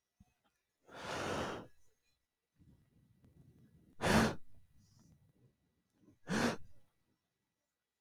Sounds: Sigh